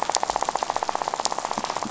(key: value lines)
label: biophony, rattle
recorder: SoundTrap 500